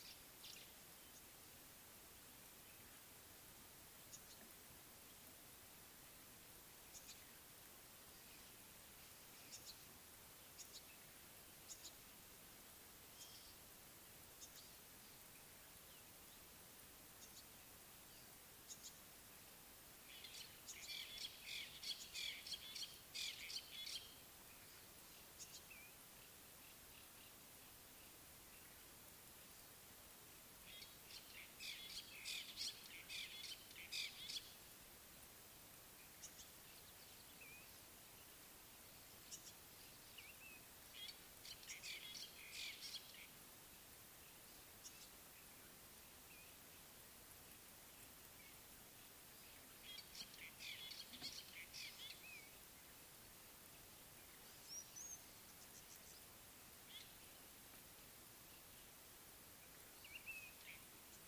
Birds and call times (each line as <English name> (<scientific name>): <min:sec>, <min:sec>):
African Gray Flycatcher (Bradornis microrhynchus): 0:04.1, 0:06.9, 0:09.5, 0:10.7, 0:11.7, 0:14.4, 0:18.7, 0:25.4, 0:36.2, 0:39.3, 0:44.8, 0:54.8
Fork-tailed Drongo (Dicrurus adsimilis): 0:20.3, 0:21.5, 0:22.2, 0:23.2, 0:31.7, 0:32.6, 0:34.0, 0:41.0, 0:42.6, 0:50.7, 0:56.9
Blue-naped Mousebird (Urocolius macrourus): 0:40.2, 1:00.1